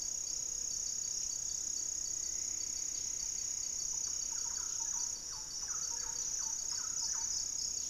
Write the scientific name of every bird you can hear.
Leptotila rufaxilla, Campylorhynchus turdinus, Myrmelastes hyperythrus